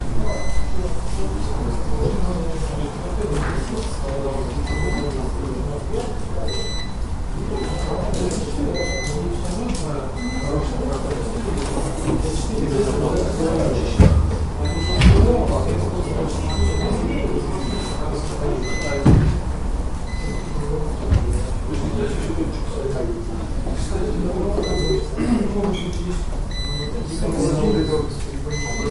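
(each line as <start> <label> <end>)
0.2 An alert beep repeats repeatedly. 0.7
0.3 Many people are speaking at the same time indistinctly. 28.9
4.6 An alert beep repeats repeatedly. 5.3
6.3 An alert beep repeats repeatedly. 7.1
7.7 An alert beep repeats repeatedly. 9.2
10.4 An alert beep repeats repeatedly. 11.0
14.7 An alert beep repeats repeatedly. 15.4
16.6 An alert beep repeats repeatedly. 17.3
17.9 An alert beep repeats repeatedly. 19.4
20.4 An alert beep repeats repeatedly. 21.0
20.4 An echo of a beeping sound. 21.0
24.7 An alert beep repeats repeatedly. 25.3
26.7 An alert beep repeats repeatedly. 27.2
28.0 An alert beep repeats repeatedly. 28.9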